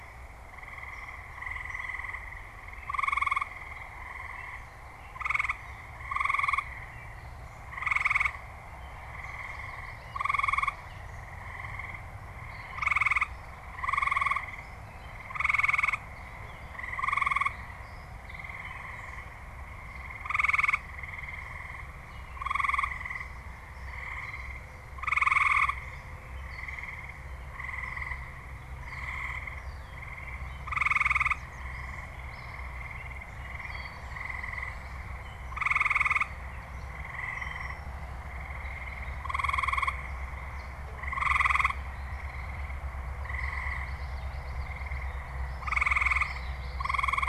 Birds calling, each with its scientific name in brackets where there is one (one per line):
Common Yellowthroat (Geothlypis trichas)
Gray Catbird (Dumetella carolinensis)